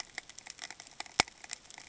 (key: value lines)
label: ambient
recorder: HydroMoth